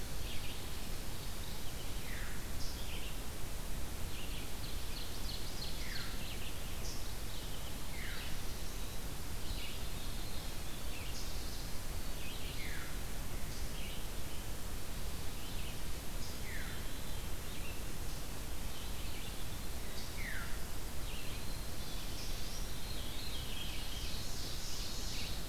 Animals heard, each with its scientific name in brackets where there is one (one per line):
Red-eyed Vireo (Vireo olivaceus)
Mourning Warbler (Geothlypis philadelphia)
Ovenbird (Seiurus aurocapilla)
Veery (Catharus fuscescens)